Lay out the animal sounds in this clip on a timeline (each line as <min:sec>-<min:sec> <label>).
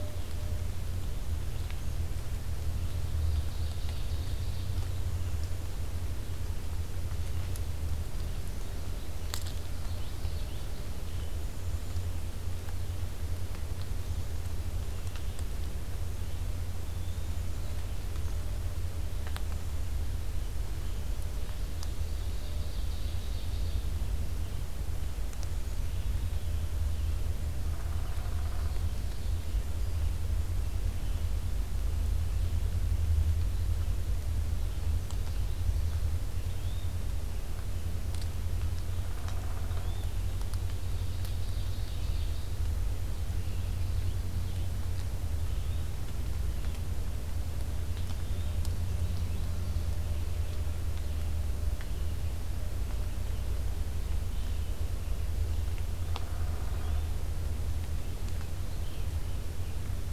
0:00.0-0:18.3 Red-eyed Vireo (Vireo olivaceus)
0:03.1-0:04.8 Ovenbird (Seiurus aurocapilla)
0:09.3-0:10.7 Common Yellowthroat (Geothlypis trichas)
0:11.3-0:12.0 Black-capped Chickadee (Poecile atricapillus)
0:16.7-0:17.4 Yellow-bellied Flycatcher (Empidonax flaviventris)
0:20.4-1:00.1 Red-eyed Vireo (Vireo olivaceus)
0:22.0-0:23.9 Ovenbird (Seiurus aurocapilla)
0:25.2-0:25.8 Black-capped Chickadee (Poecile atricapillus)
0:27.7-0:28.8 Downy Woodpecker (Dryobates pubescens)
0:36.4-0:37.0 Yellow-bellied Flycatcher (Empidonax flaviventris)
0:38.5-0:40.0 Downy Woodpecker (Dryobates pubescens)
0:39.6-0:40.1 Yellow-bellied Flycatcher (Empidonax flaviventris)
0:40.7-0:42.6 Ovenbird (Seiurus aurocapilla)
0:45.2-0:45.9 Yellow-bellied Flycatcher (Empidonax flaviventris)
0:48.0-0:48.6 Yellow-bellied Flycatcher (Empidonax flaviventris)
0:55.9-0:57.1 Downy Woodpecker (Dryobates pubescens)
0:56.6-0:57.2 Yellow-bellied Flycatcher (Empidonax flaviventris)